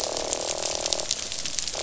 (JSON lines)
{"label": "biophony, croak", "recorder": "SoundTrap 500"}